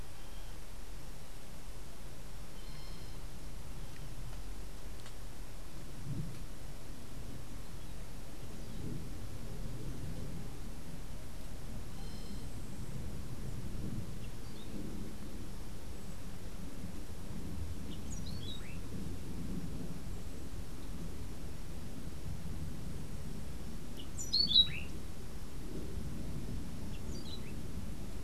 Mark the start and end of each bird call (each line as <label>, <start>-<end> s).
Orange-billed Nightingale-Thrush (Catharus aurantiirostris), 17.6-18.9 s
Orange-billed Nightingale-Thrush (Catharus aurantiirostris), 23.7-25.0 s
Orange-billed Nightingale-Thrush (Catharus aurantiirostris), 26.5-27.8 s